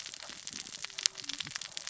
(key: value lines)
label: biophony, cascading saw
recorder: SoundTrap 600 or HydroMoth